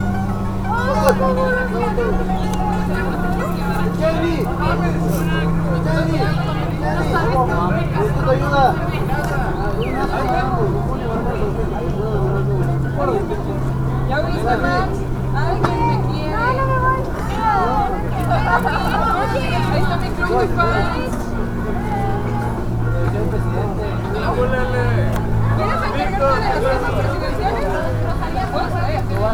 Can any birds be heard?
yes